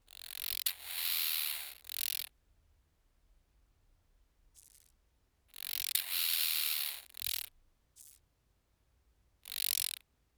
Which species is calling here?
Arcyptera fusca